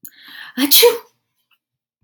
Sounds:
Sneeze